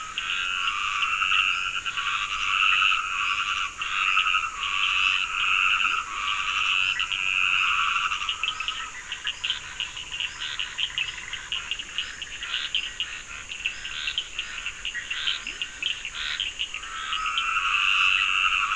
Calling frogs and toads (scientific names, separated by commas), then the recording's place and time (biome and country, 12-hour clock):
Dendropsophus nahdereri, Rhinella icterica, Leptodactylus latrans, Boana bischoffi, Sphaenorhynchus surdus, Scinax perereca
Atlantic Forest, Brazil, 9:15pm